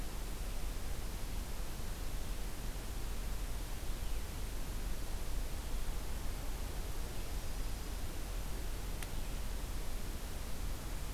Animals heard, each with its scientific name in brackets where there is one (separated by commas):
Yellow-rumped Warbler (Setophaga coronata)